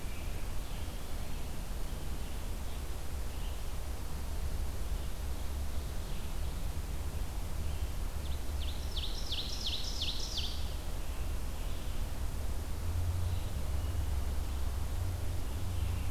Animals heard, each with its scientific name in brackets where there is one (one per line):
Ovenbird (Seiurus aurocapilla)
Red-eyed Vireo (Vireo olivaceus)